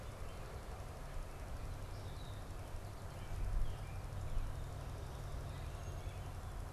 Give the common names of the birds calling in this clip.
unidentified bird, Song Sparrow